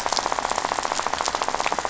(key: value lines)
label: biophony, rattle
recorder: SoundTrap 500